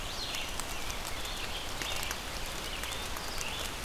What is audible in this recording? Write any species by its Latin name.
Vireo olivaceus